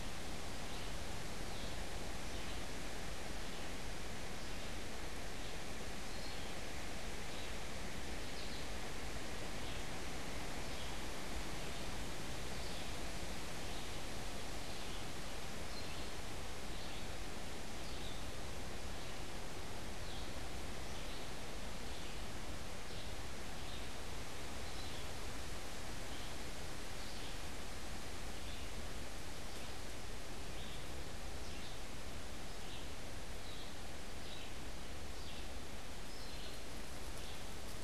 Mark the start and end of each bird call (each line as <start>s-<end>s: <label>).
0.0s-37.8s: Red-eyed Vireo (Vireo olivaceus)